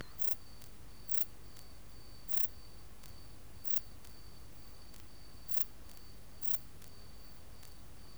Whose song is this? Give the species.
Pterolepis spoliata